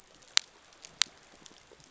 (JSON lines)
{"label": "biophony", "recorder": "SoundTrap 500"}